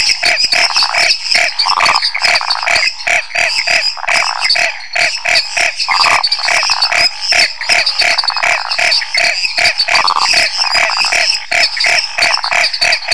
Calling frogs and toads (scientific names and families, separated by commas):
Boana raniceps (Hylidae), Dendropsophus minutus (Hylidae), Dendropsophus nanus (Hylidae), Phyllomedusa sauvagii (Hylidae)